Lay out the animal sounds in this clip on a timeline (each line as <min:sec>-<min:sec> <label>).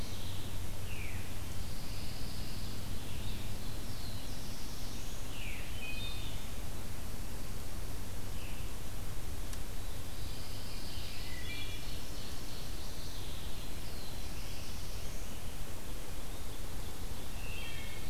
0:00.5-0:01.7 Veery (Catharus fuscescens)
0:01.4-0:02.9 Pine Warbler (Setophaga pinus)
0:03.6-0:05.9 Black-throated Blue Warbler (Setophaga caerulescens)
0:05.2-0:05.7 Veery (Catharus fuscescens)
0:05.4-0:06.8 Wood Thrush (Hylocichla mustelina)
0:09.8-0:11.4 Pine Warbler (Setophaga pinus)
0:11.0-0:12.3 Wood Thrush (Hylocichla mustelina)
0:11.2-0:13.4 Ovenbird (Seiurus aurocapilla)
0:13.2-0:15.6 Black-throated Blue Warbler (Setophaga caerulescens)
0:17.1-0:18.1 Wood Thrush (Hylocichla mustelina)